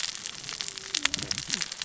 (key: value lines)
label: biophony, cascading saw
recorder: SoundTrap 600 or HydroMoth